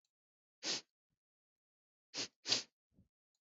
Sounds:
Sniff